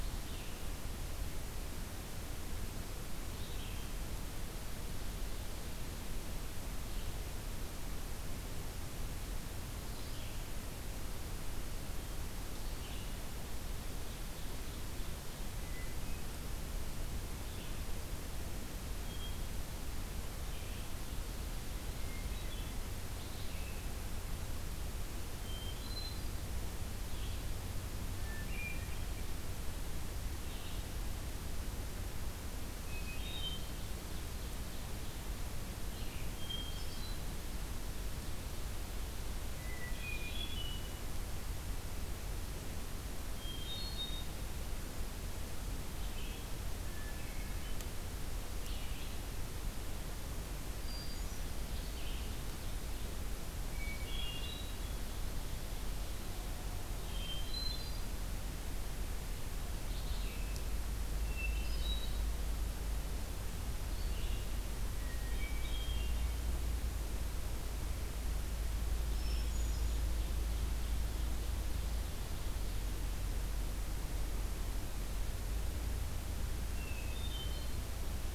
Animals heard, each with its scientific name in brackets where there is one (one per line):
Red-eyed Vireo (Vireo olivaceus)
Ovenbird (Seiurus aurocapilla)
Hermit Thrush (Catharus guttatus)